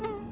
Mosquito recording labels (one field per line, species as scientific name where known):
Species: Anopheles albimanus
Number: one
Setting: insect culture